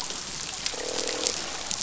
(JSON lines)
{"label": "biophony, croak", "recorder": "SoundTrap 500"}